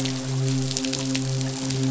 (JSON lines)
{"label": "biophony, midshipman", "recorder": "SoundTrap 500"}